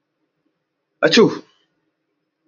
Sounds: Sneeze